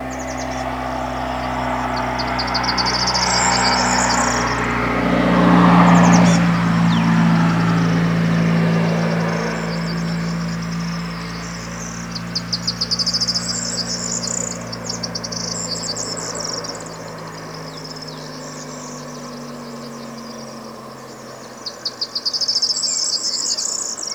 Is a dog barking?
no